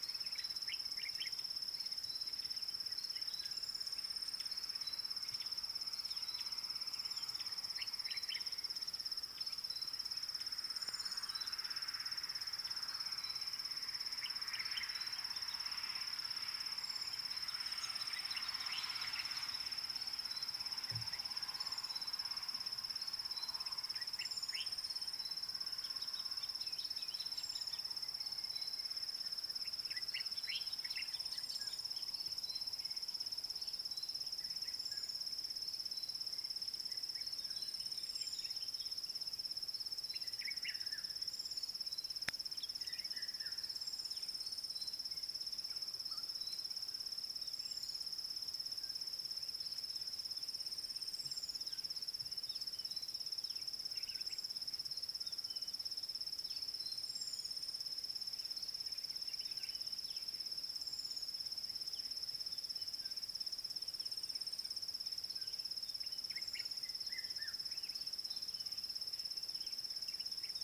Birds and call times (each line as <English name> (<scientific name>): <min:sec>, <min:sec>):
Common Bulbul (Pycnonotus barbatus): 0:01.1, 0:08.2, 0:24.6, 0:30.5, 0:40.5, 1:06.5
Red-chested Cuckoo (Cuculus solitarius): 1:07.2